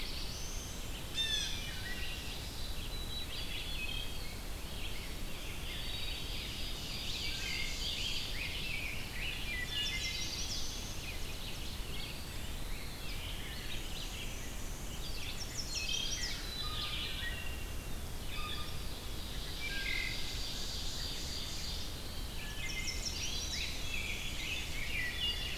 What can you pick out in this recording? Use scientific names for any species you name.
Setophaga caerulescens, Vireo olivaceus, Cyanocitta cristata, Seiurus aurocapilla, Hylocichla mustelina, Poecile atricapillus, Pheucticus ludovicianus, Setophaga pensylvanica, Contopus virens, Mniotilta varia